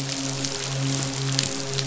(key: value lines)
label: biophony, midshipman
recorder: SoundTrap 500